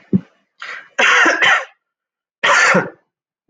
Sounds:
Cough